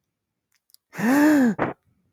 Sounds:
Sniff